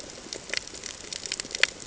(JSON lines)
{"label": "ambient", "recorder": "HydroMoth"}